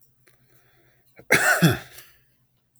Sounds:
Sneeze